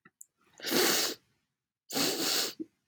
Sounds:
Sniff